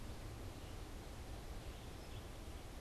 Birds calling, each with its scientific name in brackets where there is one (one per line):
Red-eyed Vireo (Vireo olivaceus)